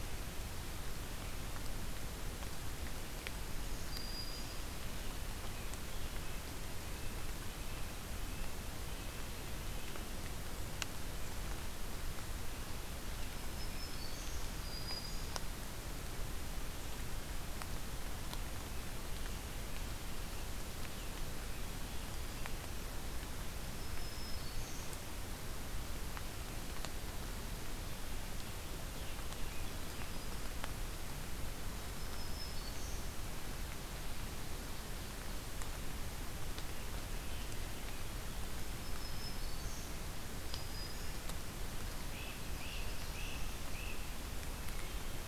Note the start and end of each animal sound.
3.5s-4.8s: Black-throated Green Warbler (Setophaga virens)
5.3s-10.2s: Red-breasted Nuthatch (Sitta canadensis)
13.2s-15.4s: Black-throated Green Warbler (Setophaga virens)
23.3s-25.0s: Black-throated Green Warbler (Setophaga virens)
31.7s-33.2s: Black-throated Green Warbler (Setophaga virens)
38.5s-41.3s: Black-throated Green Warbler (Setophaga virens)
42.0s-44.1s: Great Crested Flycatcher (Myiarchus crinitus)
42.1s-43.7s: Black-throated Blue Warbler (Setophaga caerulescens)

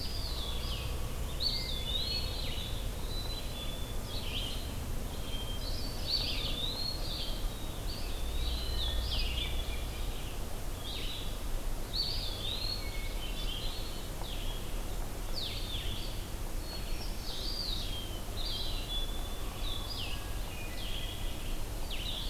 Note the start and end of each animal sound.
0.0s-4.6s: Red-eyed Vireo (Vireo olivaceus)
1.2s-2.4s: Eastern Wood-Pewee (Contopus virens)
1.5s-2.6s: Hermit Thrush (Catharus guttatus)
3.0s-4.0s: Black-capped Chickadee (Poecile atricapillus)
5.1s-6.4s: Hermit Thrush (Catharus guttatus)
6.0s-22.3s: Blue-headed Vireo (Vireo solitarius)
6.0s-7.0s: Eastern Wood-Pewee (Contopus virens)
7.8s-8.9s: Eastern Wood-Pewee (Contopus virens)
11.9s-12.9s: Eastern Wood-Pewee (Contopus virens)
12.9s-14.0s: Hermit Thrush (Catharus guttatus)
16.6s-17.7s: Hermit Thrush (Catharus guttatus)
17.3s-17.9s: Eastern Wood-Pewee (Contopus virens)
18.4s-19.4s: Black-capped Chickadee (Poecile atricapillus)
19.8s-21.3s: Hermit Thrush (Catharus guttatus)

